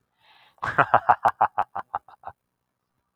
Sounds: Laughter